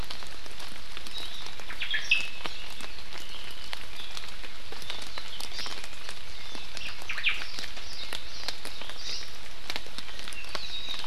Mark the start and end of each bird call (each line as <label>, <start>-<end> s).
Omao (Myadestes obscurus), 1.7-2.5 s
Hawaii Amakihi (Chlorodrepanis virens), 5.5-5.8 s
Omao (Myadestes obscurus), 6.7-7.4 s
Warbling White-eye (Zosterops japonicus), 7.4-8.5 s
Warbling White-eye (Zosterops japonicus), 10.6-11.0 s